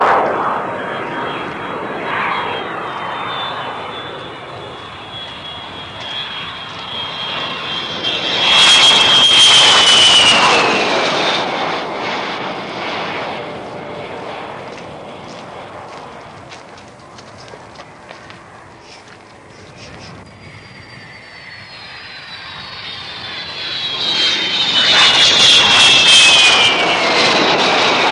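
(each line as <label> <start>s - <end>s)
An aircraft, like a jet, is flying in the sky. 0.0s - 8.2s
An aircraft flies near the microphone. 8.2s - 14.3s
The recording sounds like it was made while the person was moving. 14.4s - 23.4s
An aircraft flies near the recorder again. 23.5s - 28.1s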